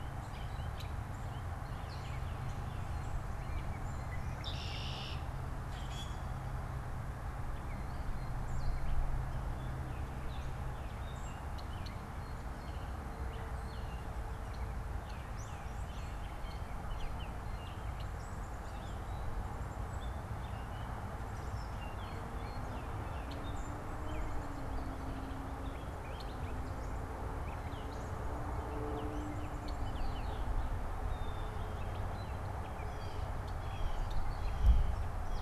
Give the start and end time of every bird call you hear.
[0.00, 35.42] Gray Catbird (Dumetella carolinensis)
[4.16, 5.36] Red-winged Blackbird (Agelaius phoeniceus)
[5.56, 6.26] Common Grackle (Quiscalus quiscula)
[11.46, 11.96] Red-winged Blackbird (Agelaius phoeniceus)
[21.76, 22.76] Blue Jay (Cyanocitta cristata)
[32.66, 35.42] Blue Jay (Cyanocitta cristata)

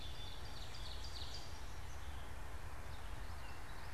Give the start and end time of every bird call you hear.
[0.00, 1.62] Ovenbird (Seiurus aurocapilla)
[0.00, 3.93] Gray Catbird (Dumetella carolinensis)

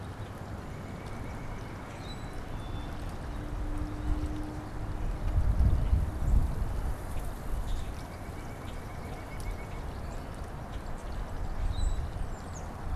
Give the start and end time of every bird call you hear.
[0.51, 2.51] White-breasted Nuthatch (Sitta carolinensis)
[1.81, 3.01] Black-capped Chickadee (Poecile atricapillus)
[7.51, 8.01] Common Grackle (Quiscalus quiscula)
[7.81, 9.91] White-breasted Nuthatch (Sitta carolinensis)
[8.51, 8.81] Common Grackle (Quiscalus quiscula)
[11.61, 12.11] Common Grackle (Quiscalus quiscula)
[12.01, 12.91] Tufted Titmouse (Baeolophus bicolor)

